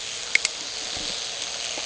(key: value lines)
label: anthrophony, boat engine
recorder: HydroMoth